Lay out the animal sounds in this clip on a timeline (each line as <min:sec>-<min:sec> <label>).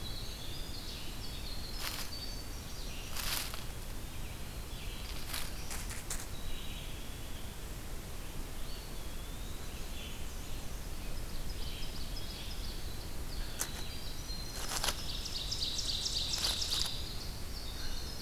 0:00.0-0:03.2 Winter Wren (Troglodytes hiemalis)
0:02.4-0:18.2 Red-eyed Vireo (Vireo olivaceus)
0:03.4-0:04.7 Eastern Wood-Pewee (Contopus virens)
0:04.7-0:05.9 Black-throated Blue Warbler (Setophaga caerulescens)
0:06.3-0:07.8 Black-capped Chickadee (Poecile atricapillus)
0:08.5-0:10.0 Eastern Wood-Pewee (Contopus virens)
0:09.3-0:10.9 Black-and-white Warbler (Mniotilta varia)
0:11.0-0:12.9 Ovenbird (Seiurus aurocapilla)
0:12.9-0:18.2 Winter Wren (Troglodytes hiemalis)
0:14.2-0:16.7 Ovenbird (Seiurus aurocapilla)